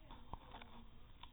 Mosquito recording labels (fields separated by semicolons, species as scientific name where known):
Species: no mosquito; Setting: cup